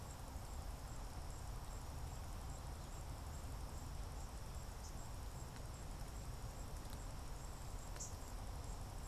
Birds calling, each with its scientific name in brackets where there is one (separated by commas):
unidentified bird